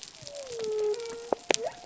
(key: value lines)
label: biophony
recorder: SoundTrap 300